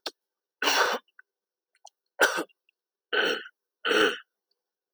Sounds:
Throat clearing